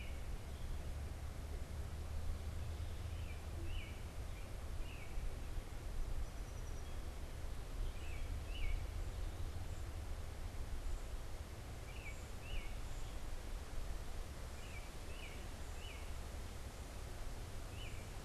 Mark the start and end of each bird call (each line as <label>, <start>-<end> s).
American Robin (Turdus migratorius), 0.0-18.2 s
Song Sparrow (Melospiza melodia), 5.7-9.1 s